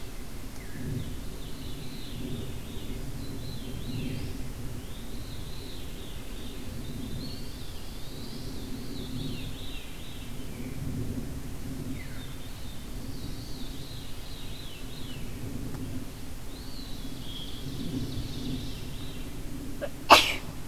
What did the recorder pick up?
Veery, Eastern Wood-Pewee, Pine Warbler, Ovenbird